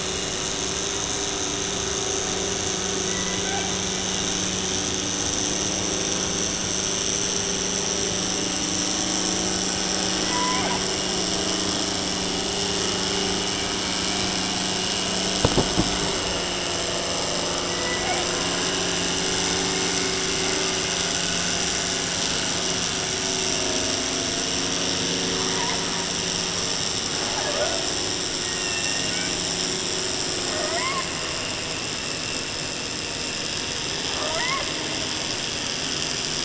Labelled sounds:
3.0	3.7	killer whale, 0.31 to 2.6 kHz
10.1	10.8	killer whale, 0.37 to 2.6 kHz
17.6	18.3	killer whale, 0.38 to 2.9 kHz
25.5	25.8	killer whale, 0.46 to 1.4 kHz
27.2	27.9	killer whale, 0.30 to 2.1 kHz
28.4	29.3	killer whale, southern resident, J pod, call S01, 1.0 to 3.0 kHz
30.5	31.1	killer whale, 0.42 to 2.4 kHz
34.0	34.6	killer whale, southern resident, 0.30 to 3.0 kHz

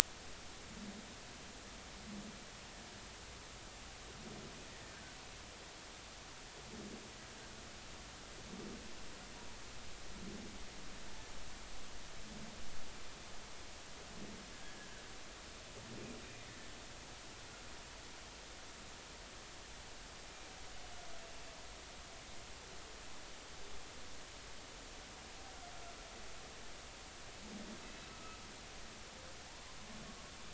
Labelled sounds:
14.8	15.0	humpback whale, 1.5 to 1.8 kHz
28.1	28.4	humpback whale, 1.2 to 1.3 kHz

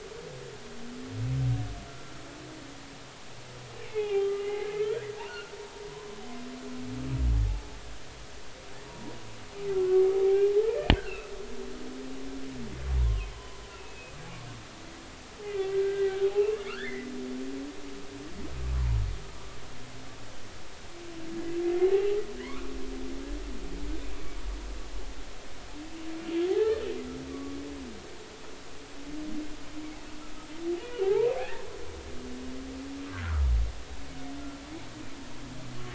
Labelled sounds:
1.9	2.1	humpback whale, 1.3 to 1.4 kHz
3.8	4.9	humpback whale, 0.80 to 3.4 kHz
5.2	6.2	humpback whale, 0.93 to 3.0 kHz
7.4	7.7	humpback whale, 0.80 to 0.90 kHz
8.9	9.1	humpback whale, 0.90 to 0.99 kHz
9.8	11.3	humpback whale, 0.80 to 2.8 kHz
12.9	14.2	humpback whale, 0.80 to 3.5 kHz
15.4	17.1	humpback whale, 1.2 to 3.0 kHz
18.7	19.0	humpback whale, 0.90 to 1.2 kHz
21.8	22.7	humpback whale, 0.80 to 2.3 kHz
26.5	27.6	humpback whale, 0.80 to 1.9 kHz
31.0	31.6	humpback whale, 0.80 to 1.9 kHz
33.1	33.4	humpback whale, 0.99 to 1.7 kHz

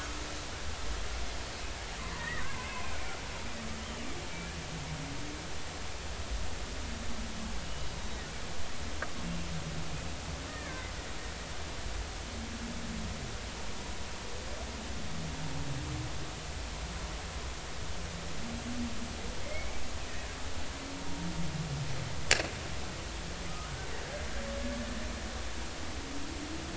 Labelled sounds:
2.1	2.7	killer whale, Bigg's (transient), 0.96 to 2.1 kHz
10.5	10.9	killer whale, Bigg's (transient), 1.5 to 1.9 kHz
19.4	19.8	killer whale, Bigg's (transient), 2.0 to 2.4 kHz

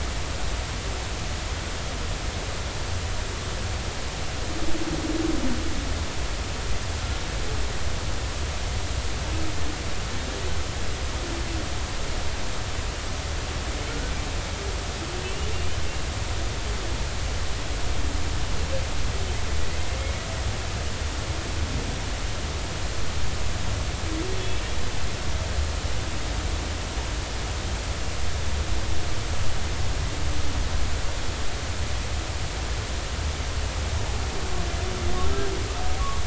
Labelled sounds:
15.2	15.8	humpback whale, 2.6 to 3.1 kHz

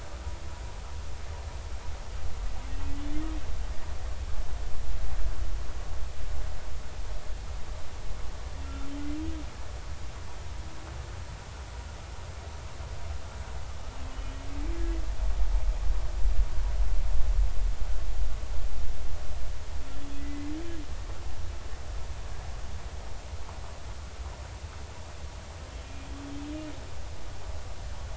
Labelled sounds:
14.1	14.4	humpback whale, 2.8 to 3.0 kHz
20.2	20.5	humpback whale, 2.0 to 2.1 kHz

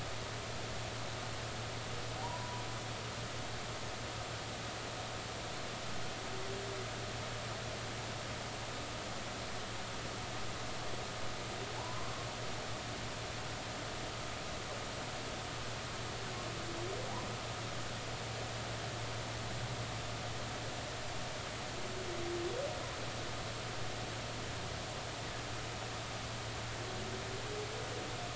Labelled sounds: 2.2	2.6	humpback whale, 0.80 to 1.0 kHz
11.8	12.1	humpback whale, 0.83 to 1.2 kHz

